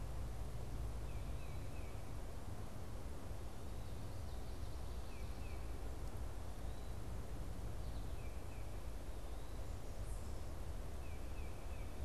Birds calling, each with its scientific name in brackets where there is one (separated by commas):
Tufted Titmouse (Baeolophus bicolor)